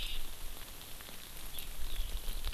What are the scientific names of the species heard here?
Alauda arvensis